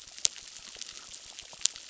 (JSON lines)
{"label": "biophony, crackle", "recorder": "SoundTrap 600"}